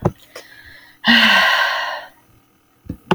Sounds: Sigh